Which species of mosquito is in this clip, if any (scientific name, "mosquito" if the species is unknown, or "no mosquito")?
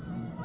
Aedes albopictus